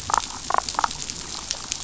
{"label": "biophony, damselfish", "recorder": "SoundTrap 500"}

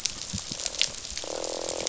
{"label": "biophony, croak", "recorder": "SoundTrap 500"}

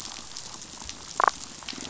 {"label": "biophony", "recorder": "SoundTrap 500"}
{"label": "biophony, damselfish", "recorder": "SoundTrap 500"}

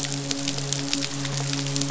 {"label": "biophony, midshipman", "recorder": "SoundTrap 500"}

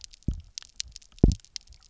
{"label": "biophony, double pulse", "recorder": "SoundTrap 300"}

